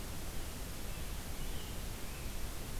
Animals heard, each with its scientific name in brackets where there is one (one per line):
American Robin (Turdus migratorius)